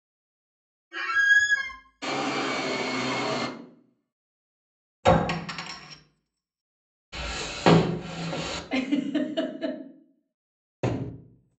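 At 0.91 seconds, squeaking is heard. Then, at 2.01 seconds, the sound of a vacuum cleaner can be heard. Next, at 5.03 seconds, glass chinks. Afterwards, at 7.12 seconds, wooden furniture moves. Following that, at 8.68 seconds, someone giggles. Then, at 10.82 seconds, there is thumping.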